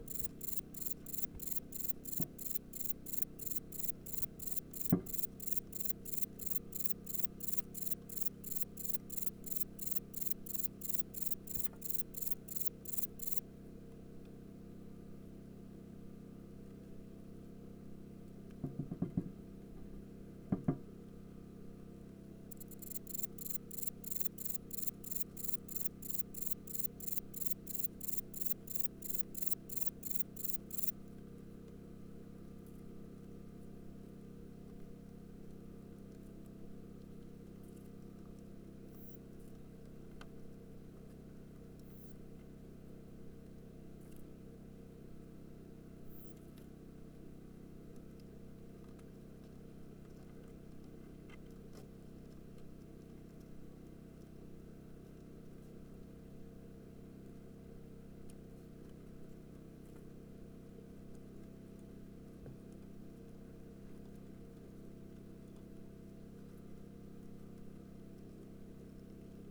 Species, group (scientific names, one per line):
Broughtonia domogledi
Orthoptera